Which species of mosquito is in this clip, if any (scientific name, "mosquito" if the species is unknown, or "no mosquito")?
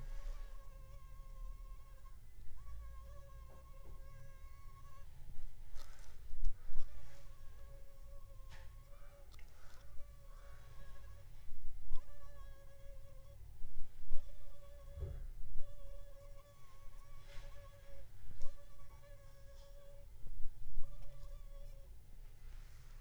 Anopheles funestus s.s.